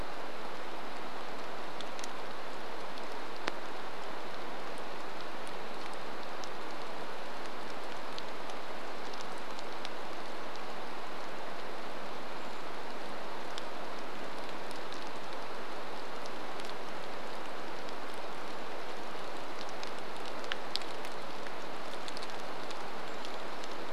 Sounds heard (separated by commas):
Brown Creeper call, rain